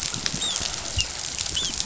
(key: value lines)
label: biophony, dolphin
recorder: SoundTrap 500